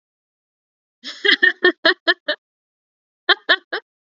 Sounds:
Laughter